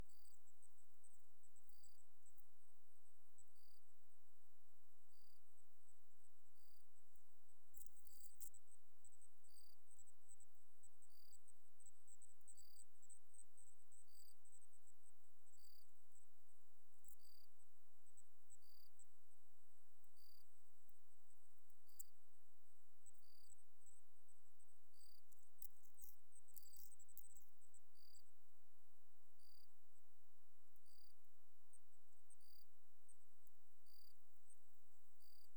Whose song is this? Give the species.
Gryllus assimilis